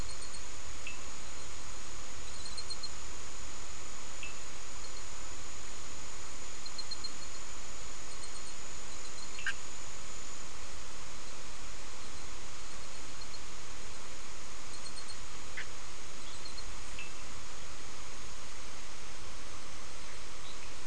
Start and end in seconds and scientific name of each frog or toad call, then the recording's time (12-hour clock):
0.6	1.3	Sphaenorhynchus surdus
4.0	4.6	Sphaenorhynchus surdus
9.2	9.9	Boana bischoffi
15.2	15.9	Boana bischoffi
16.8	17.3	Sphaenorhynchus surdus
20.2	20.8	Boana leptolineata
6:30pm